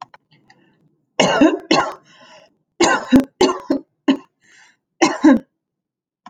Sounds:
Cough